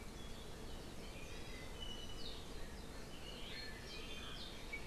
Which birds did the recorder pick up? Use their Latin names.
Chlorodrepanis virens, Himatione sanguinea